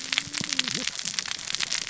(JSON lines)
{"label": "biophony, cascading saw", "recorder": "SoundTrap 600 or HydroMoth"}